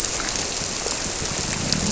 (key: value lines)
label: biophony
recorder: SoundTrap 300